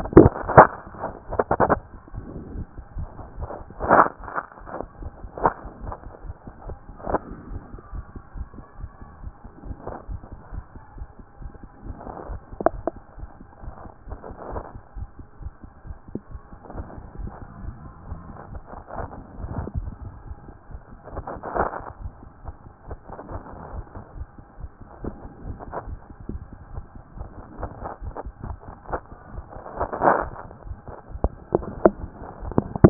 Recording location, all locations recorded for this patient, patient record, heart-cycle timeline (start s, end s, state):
tricuspid valve (TV)
aortic valve (AV)+pulmonary valve (PV)+tricuspid valve (TV)+mitral valve (MV)
#Age: Child
#Sex: Female
#Height: 126.0 cm
#Weight: 29.5 kg
#Pregnancy status: False
#Murmur: Absent
#Murmur locations: nan
#Most audible location: nan
#Systolic murmur timing: nan
#Systolic murmur shape: nan
#Systolic murmur grading: nan
#Systolic murmur pitch: nan
#Systolic murmur quality: nan
#Diastolic murmur timing: nan
#Diastolic murmur shape: nan
#Diastolic murmur grading: nan
#Diastolic murmur pitch: nan
#Diastolic murmur quality: nan
#Outcome: Abnormal
#Campaign: 2014 screening campaign
0.00	22.02	unannotated
22.02	22.12	S1
22.12	22.22	systole
22.22	22.30	S2
22.30	22.46	diastole
22.46	22.54	S1
22.54	22.64	systole
22.64	22.74	S2
22.74	22.88	diastole
22.88	22.98	S1
22.98	23.10	systole
23.10	23.18	S2
23.18	23.32	diastole
23.32	23.42	S1
23.42	23.50	systole
23.50	23.58	S2
23.58	23.74	diastole
23.74	23.84	S1
23.84	23.94	systole
23.94	24.04	S2
24.04	24.16	diastole
24.16	24.28	S1
24.28	24.38	systole
24.38	24.46	S2
24.46	24.60	diastole
24.60	24.70	S1
24.70	24.80	systole
24.80	24.88	S2
24.88	25.04	diastole
25.04	25.14	S1
25.14	25.22	systole
25.22	25.32	S2
25.32	25.46	diastole
25.46	25.58	S1
25.58	25.66	systole
25.66	25.74	S2
25.74	25.88	diastole
25.88	25.98	S1
25.98	26.08	systole
26.08	26.14	S2
26.14	26.30	diastole
26.30	26.42	S1
26.42	26.50	systole
26.50	26.58	S2
26.58	26.74	diastole
26.74	26.84	S1
26.84	26.94	systole
26.94	27.02	S2
27.02	27.18	diastole
27.18	27.28	S1
27.28	27.36	systole
27.36	27.44	S2
27.44	27.60	diastole
27.60	32.90	unannotated